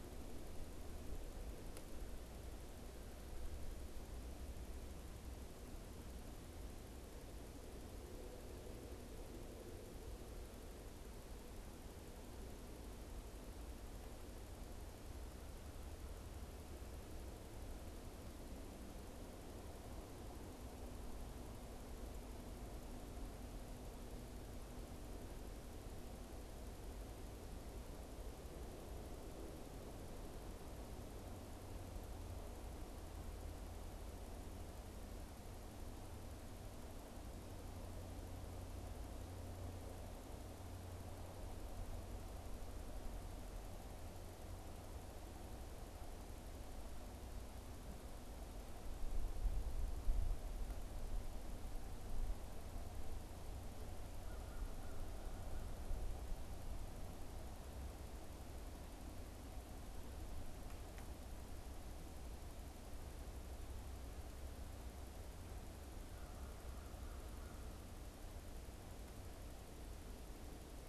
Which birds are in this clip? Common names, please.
American Crow